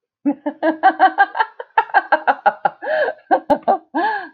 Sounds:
Laughter